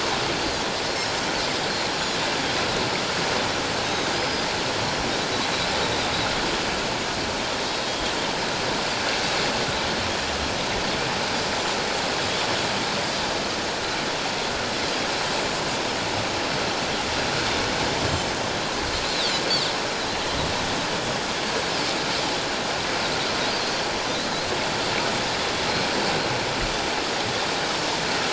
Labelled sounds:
3.8	4.5	Pacific white-sided dolphin, 3.7 to 5.1 kHz
7.6	8.0	Pacific white-sided dolphin, 3.7 to 4.3 kHz
19.0	19.3	Pacific white-sided dolphin, 3.2 to 4.3 kHz

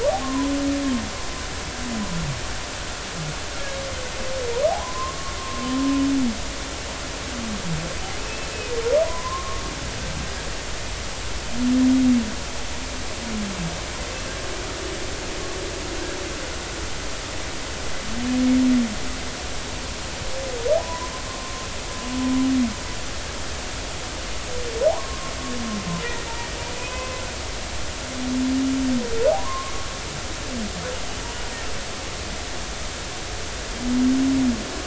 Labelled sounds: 0.2	0.5	humpback whale, 0.96 to 1.1 kHz
4.8	5.7	humpback whale, 0.93 to 1.2 kHz
8.2	9.6	humpback whale, 0.93 to 2.7 kHz
20.8	21.7	humpback whale, 0.93 to 1.2 kHz
24.9	25.3	humpback whale, 0.80 to 1.2 kHz
26.0	26.3	humpback whale, 1.8 to 2.1 kHz
26.7	27.2	humpback whale, 0.96 to 2.6 kHz
29.4	29.9	humpback whale, 0.93 to 1.2 kHz

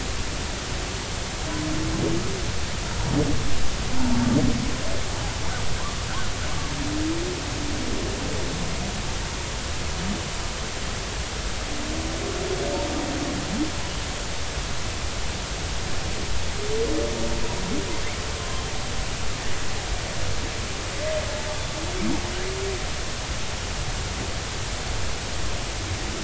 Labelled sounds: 18.4	18.7	humpback whale, 0.99 to 1.1 kHz

